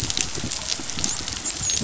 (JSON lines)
{"label": "biophony, dolphin", "recorder": "SoundTrap 500"}